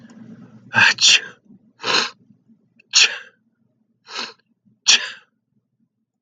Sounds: Sneeze